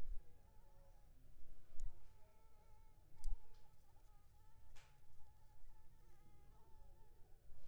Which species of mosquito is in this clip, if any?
Anopheles arabiensis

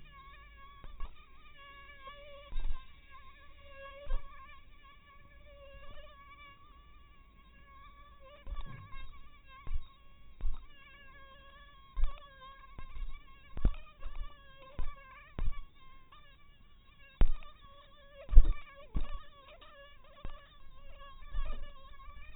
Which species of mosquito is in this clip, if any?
mosquito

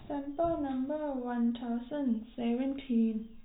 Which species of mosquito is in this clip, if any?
no mosquito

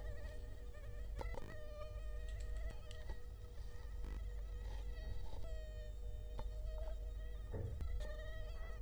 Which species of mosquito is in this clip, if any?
Culex quinquefasciatus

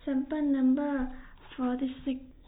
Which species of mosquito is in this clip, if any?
no mosquito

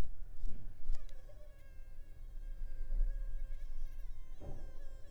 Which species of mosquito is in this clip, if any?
Culex pipiens complex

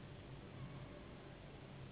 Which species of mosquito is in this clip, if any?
Anopheles gambiae s.s.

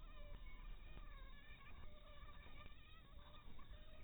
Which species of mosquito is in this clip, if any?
Anopheles harrisoni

